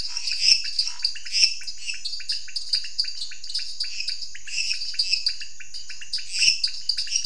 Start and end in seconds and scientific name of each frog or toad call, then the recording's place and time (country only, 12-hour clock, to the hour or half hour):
0.0	7.2	Dendropsophus minutus
0.0	7.2	Dendropsophus nanus
0.0	7.2	Leptodactylus podicipinus
0.0	6.9	Scinax fuscovarius
Brazil, ~8pm